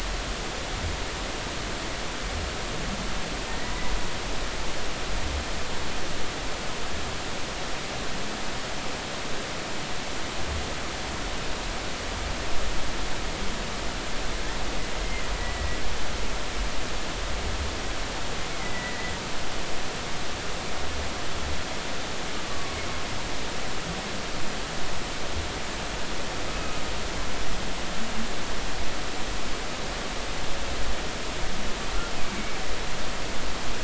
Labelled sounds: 3.5	3.7	humpback whale, 1.8 to 2.0 kHz
15.4	15.8	humpback whale, 1.9 to 2.0 kHz
18.6	19.1	humpback whale, 1.8 to 2.2 kHz
22.5	22.8	humpback whale, 1.1 to 1.2 kHz

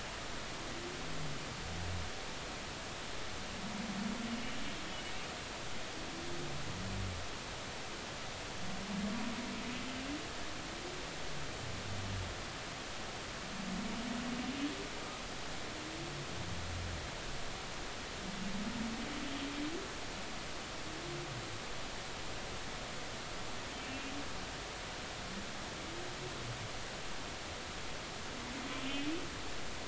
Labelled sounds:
23.8	24.1	humpback whale, 2.6 to 2.8 kHz

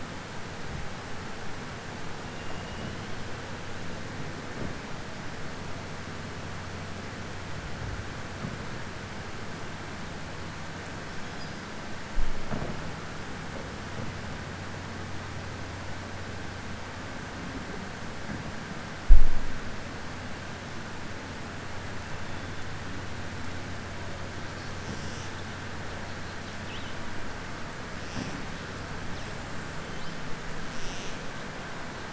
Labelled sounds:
2.3	3.0	killer whale, southern resident, 1.9 to 3.9 kHz

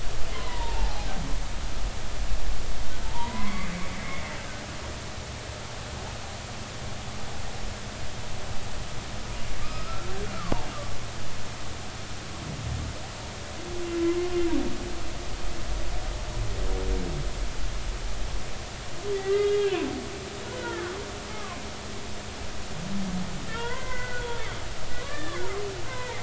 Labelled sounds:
0.3	1.1	humpback whale, 0.80 to 2.1 kHz
3.0	4.3	humpback whale, 0.83 to 2.3 kHz
9.6	10.1	humpback whale, 1.2 to 1.5 kHz
19.1	20.9	humpback whale, 0.96 to 3.8 kHz
21.3	21.6	humpback whale, 0.99 to 1.3 kHz
23.5	24.3	humpback whale, 0.90 to 3.5 kHz
25.0	26.2	humpback whale, 0.86 to 2.1 kHz

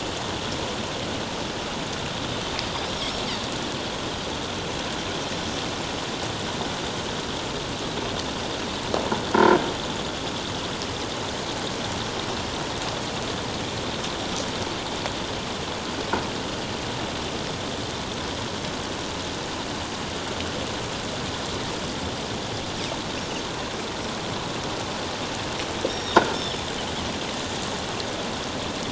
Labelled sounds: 25.9	26.6	Pacific white-sided dolphin, 1.3 to 5.7 kHz

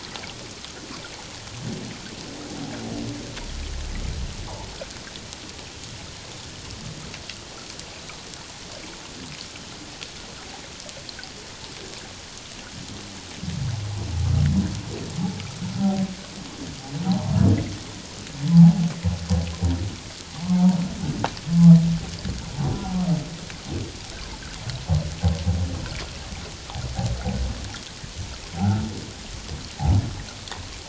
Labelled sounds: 17.1	17.3	humpback whale, 0.78 to 1.1 kHz
18.5	18.8	humpback whale, 0.78 to 0.94 kHz
20.5	20.8	humpback whale, 0.84 to 0.97 kHz

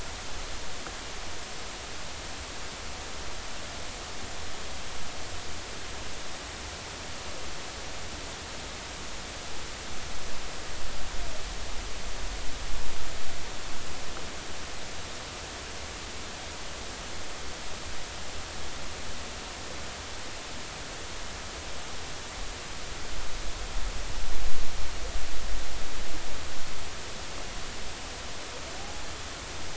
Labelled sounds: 28.8	29.1	humpback whale, 0.80 to 0.90 kHz

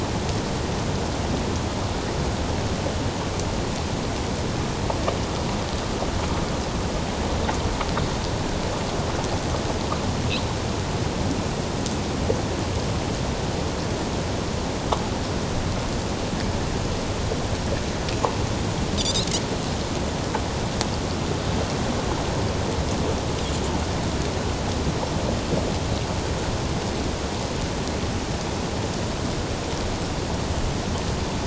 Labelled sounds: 19.0	19.3	Pacific white-sided dolphin, 3.3 to 4.2 kHz

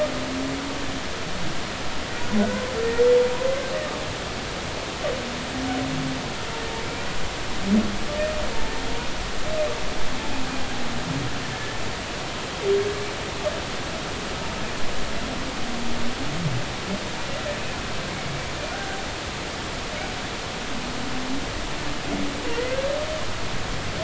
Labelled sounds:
2.4	2.7	humpback whale, 1.4 to 1.6 kHz
11.5	11.8	humpback whale, 1.7 to 1.8 kHz
22.5	22.8	humpback whale, 1.8 to 2.1 kHz

